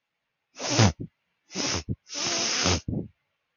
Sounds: Sniff